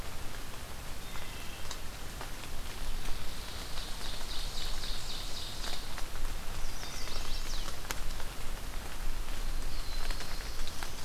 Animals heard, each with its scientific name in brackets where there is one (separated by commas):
Wood Thrush (Hylocichla mustelina), Ovenbird (Seiurus aurocapilla), Black-throated Blue Warbler (Setophaga caerulescens), Chestnut-sided Warbler (Setophaga pensylvanica)